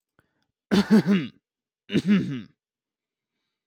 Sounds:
Throat clearing